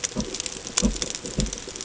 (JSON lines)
{"label": "ambient", "recorder": "HydroMoth"}